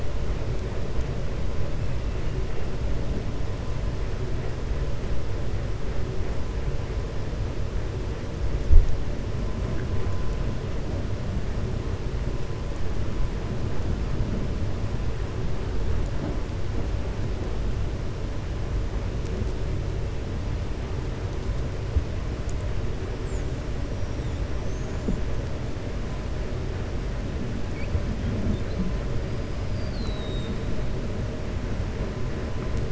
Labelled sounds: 24.5	25.2	killer whale, 5.7 to 7.2 kHz
29.6	30.6	killer whale, 3.7 to 5.0 kHz

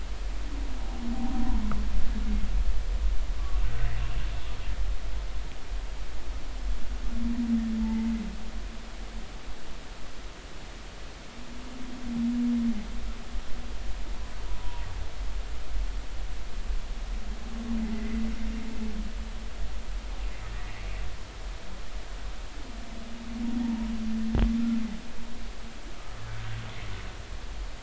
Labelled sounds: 3.6	3.9	humpback whale, 1.5 to 1.6 kHz
7.8	8.1	humpback whale, 0.83 to 2.1 kHz
14.5	14.9	humpback whale, 0.83 to 1.0 kHz
17.8	18.2	humpback whale, 1.9 to 2.2 kHz

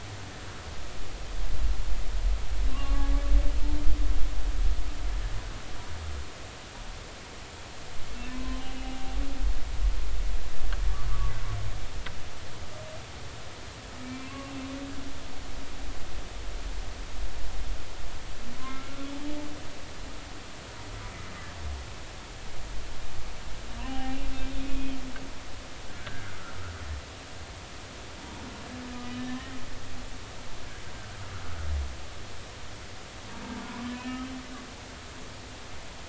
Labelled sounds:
2.7	3.1	humpback whale, 1.0 to 1.2 kHz
8.3	9.0	humpback whale, 0.99 to 2.9 kHz
14.0	14.3	humpback whale, 2.2 to 2.4 kHz
18.6	19.1	humpback whale, 0.99 to 1.4 kHz
23.7	24.2	humpback whale, 0.80 to 3.0 kHz
24.6	25.0	humpback whale, 2.4 to 2.6 kHz
25.9	26.4	humpback whale, 1.3 to 1.7 kHz
29.1	29.6	humpback whale, 1.7 to 3.8 kHz
33.9	34.2	humpback whale, 2.7 to 3.2 kHz

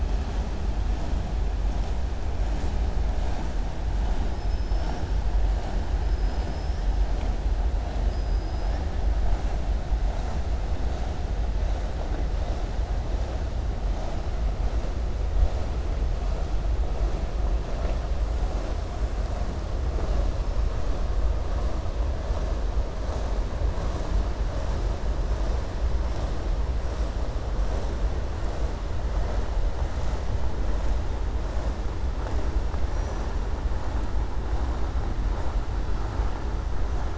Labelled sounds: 6.0	6.9	killer whale, southern resident, 4.6 to 5.7 kHz
8.0	8.8	killer whale, southern resident, 4.9 to 5.6 kHz

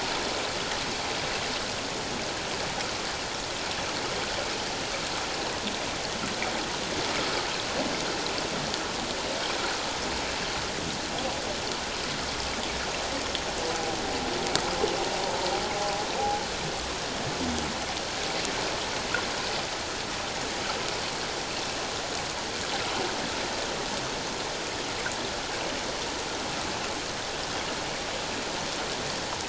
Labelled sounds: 15.2	15.5	humpback whale, 0.84 to 1.0 kHz

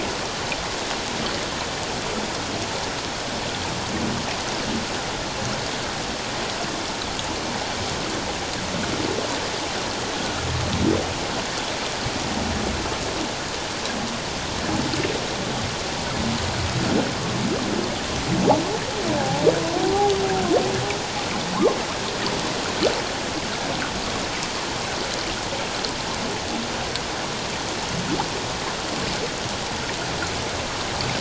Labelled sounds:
19.2	19.4	humpback whale, 0.78 to 0.91 kHz

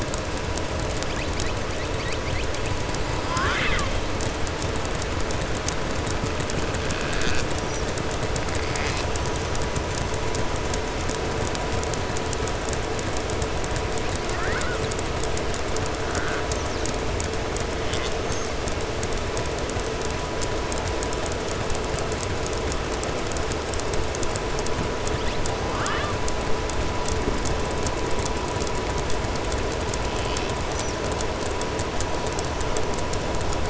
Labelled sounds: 25.6	26.1	killer whale, southern resident, 0.90 to 4.0 kHz

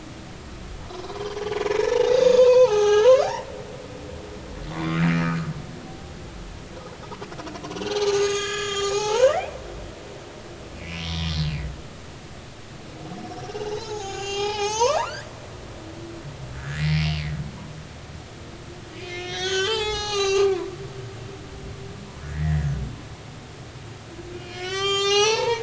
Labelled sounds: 1.6	3.3	humpback whale, 0.80 to 6.9 kHz
4.7	5.0	humpback whale, 1.0 to 2.1 kHz
7.7	9.5	humpback whale, 0.80 to 7.5 kHz
10.8	11.3	humpback whale, 2.0 to 5.7 kHz
13.6	15.3	humpback whale, 0.80 to 7.0 kHz
16.5	17.1	humpback whale, 1.4 to 2.4 kHz
19.0	20.7	humpback whale, 0.80 to 7.0 kHz
22.2	22.7	humpback whale, 1.6 to 2.0 kHz
24.4	25.6	humpback whale, 0.80 to 8.0 kHz

